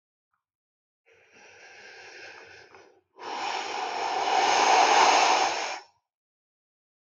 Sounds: Sigh